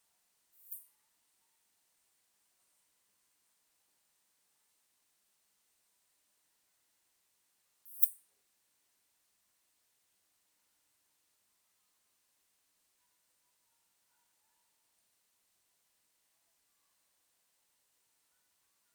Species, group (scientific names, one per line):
Poecilimon pseudornatus
Orthoptera